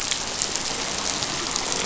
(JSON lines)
{"label": "biophony", "recorder": "SoundTrap 500"}